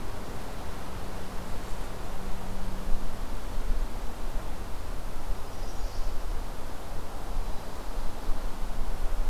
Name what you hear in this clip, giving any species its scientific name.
Setophaga pensylvanica